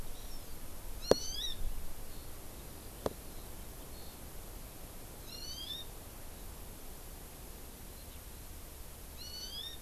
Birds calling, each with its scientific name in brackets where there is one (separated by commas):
Eurasian Skylark (Alauda arvensis), Hawaii Amakihi (Chlorodrepanis virens)